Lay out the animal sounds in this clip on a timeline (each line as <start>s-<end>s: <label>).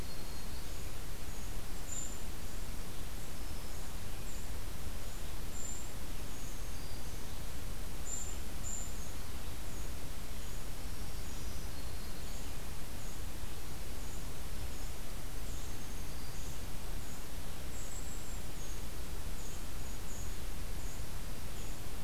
0.0s-0.6s: Black-throated Green Warbler (Setophaga virens)
0.0s-22.0s: Golden-crowned Kinglet (Regulus satrapa)
6.3s-7.3s: Black-throated Green Warbler (Setophaga virens)
10.8s-12.5s: Black-throated Green Warbler (Setophaga virens)
15.4s-16.5s: Black-throated Green Warbler (Setophaga virens)